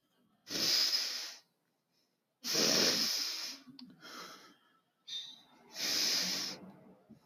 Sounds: Sniff